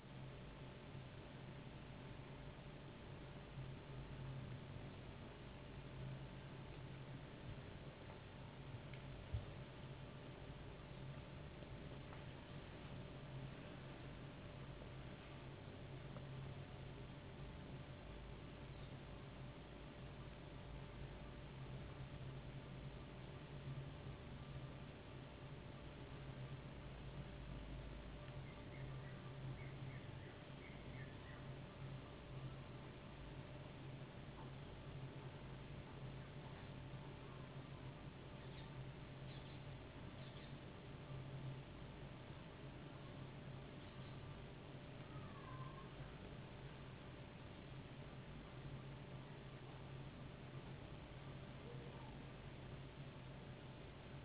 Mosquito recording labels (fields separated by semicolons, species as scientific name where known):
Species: no mosquito; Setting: insect culture